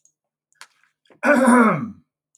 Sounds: Throat clearing